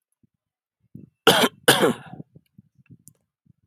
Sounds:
Cough